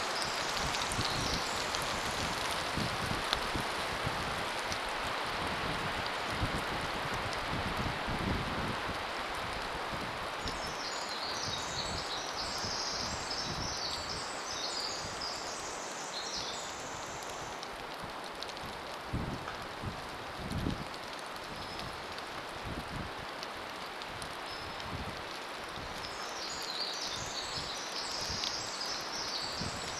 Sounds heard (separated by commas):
Hairy Woodpecker call, rain, Pacific Wren song